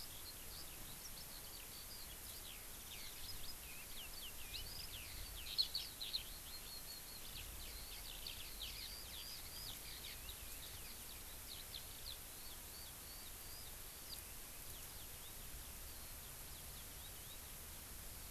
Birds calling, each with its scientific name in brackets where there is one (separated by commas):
Eurasian Skylark (Alauda arvensis)